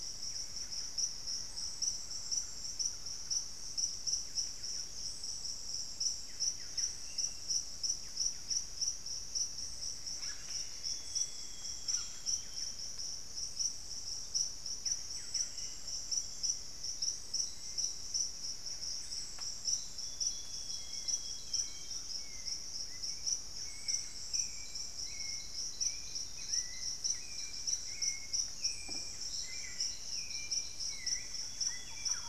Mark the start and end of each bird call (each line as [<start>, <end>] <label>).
[0.00, 1.64] Black-faced Antthrush (Formicarius analis)
[0.00, 32.28] Buff-breasted Wren (Cantorchilus leucotis)
[1.04, 3.74] Thrush-like Wren (Campylorhynchus turdinus)
[6.34, 7.14] White-bellied Tody-Tyrant (Hemitriccus griseipectus)
[6.84, 7.54] unidentified bird
[9.44, 12.04] Plumbeous Antbird (Myrmelastes hyperythrus)
[10.04, 12.34] Red-bellied Macaw (Orthopsittaca manilatus)
[10.74, 12.94] Amazonian Grosbeak (Cyanoloxia rothschildii)
[14.84, 19.44] White-bellied Tody-Tyrant (Hemitriccus griseipectus)
[15.34, 19.64] Black-faced Antthrush (Formicarius analis)
[19.94, 22.34] Amazonian Grosbeak (Cyanoloxia rothschildii)
[20.64, 32.28] Hauxwell's Thrush (Turdus hauxwelli)
[25.54, 28.14] Black-faced Antthrush (Formicarius analis)
[30.94, 32.28] Amazonian Grosbeak (Cyanoloxia rothschildii)
[31.34, 32.28] Thrush-like Wren (Campylorhynchus turdinus)